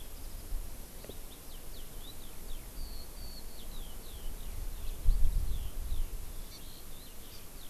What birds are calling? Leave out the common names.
Alauda arvensis, Chlorodrepanis virens